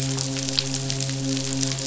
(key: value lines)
label: biophony, midshipman
recorder: SoundTrap 500